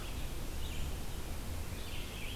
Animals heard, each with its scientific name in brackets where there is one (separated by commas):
Scarlet Tanager (Piranga olivacea), Red-eyed Vireo (Vireo olivaceus)